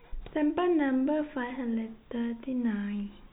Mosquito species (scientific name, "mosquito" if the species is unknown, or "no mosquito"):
no mosquito